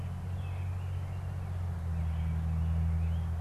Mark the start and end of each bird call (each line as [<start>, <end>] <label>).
[0.00, 2.91] American Robin (Turdus migratorius)
[2.81, 3.41] Northern Cardinal (Cardinalis cardinalis)